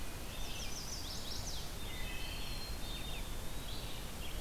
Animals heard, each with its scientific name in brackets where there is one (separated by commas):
Red-eyed Vireo (Vireo olivaceus), Black-capped Chickadee (Poecile atricapillus), Eastern Wood-Pewee (Contopus virens), Chestnut-sided Warbler (Setophaga pensylvanica), Wood Thrush (Hylocichla mustelina)